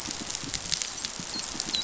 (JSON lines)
{"label": "biophony, dolphin", "recorder": "SoundTrap 500"}